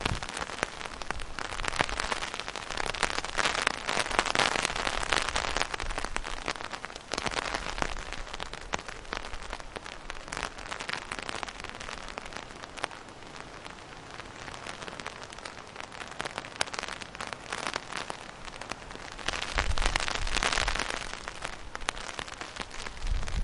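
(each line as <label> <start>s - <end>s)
Light rain softly hits an umbrella in a muffled manner. 0.0s - 23.4s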